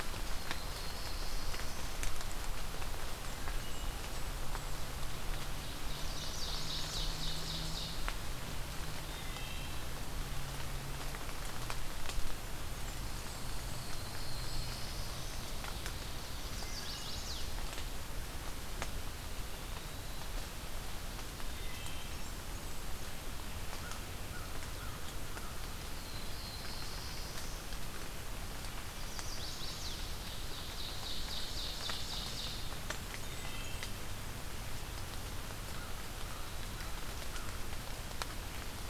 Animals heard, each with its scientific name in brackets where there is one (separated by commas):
Chestnut-sided Warbler (Setophaga pensylvanica), Ovenbird (Seiurus aurocapilla), Cedar Waxwing (Bombycilla cedrorum), American Crow (Corvus brachyrhynchos), Black-throated Blue Warbler (Setophaga caerulescens), Wood Thrush (Hylocichla mustelina), Eastern Wood-Pewee (Contopus virens), Blackburnian Warbler (Setophaga fusca)